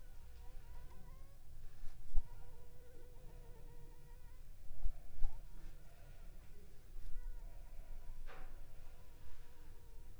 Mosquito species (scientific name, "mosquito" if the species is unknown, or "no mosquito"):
Anopheles funestus s.l.